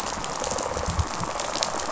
{"label": "biophony, rattle response", "recorder": "SoundTrap 500"}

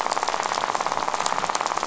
{"label": "biophony, rattle", "recorder": "SoundTrap 500"}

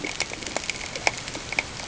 {"label": "ambient", "recorder": "HydroMoth"}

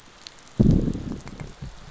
{"label": "biophony, growl", "recorder": "SoundTrap 500"}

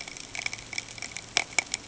{"label": "ambient", "recorder": "HydroMoth"}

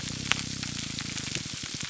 {"label": "biophony, grouper groan", "recorder": "SoundTrap 300"}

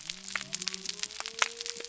{"label": "biophony", "recorder": "SoundTrap 300"}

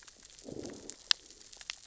{"label": "biophony, growl", "recorder": "SoundTrap 600 or HydroMoth"}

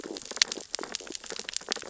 {"label": "biophony, sea urchins (Echinidae)", "recorder": "SoundTrap 600 or HydroMoth"}
{"label": "biophony, stridulation", "recorder": "SoundTrap 600 or HydroMoth"}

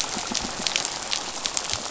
{"label": "biophony", "recorder": "SoundTrap 500"}
{"label": "biophony, rattle", "recorder": "SoundTrap 500"}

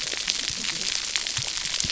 {"label": "biophony, cascading saw", "recorder": "SoundTrap 300"}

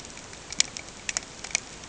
{"label": "ambient", "recorder": "HydroMoth"}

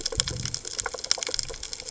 {"label": "biophony", "recorder": "HydroMoth"}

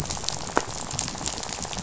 {"label": "biophony, rattle", "recorder": "SoundTrap 500"}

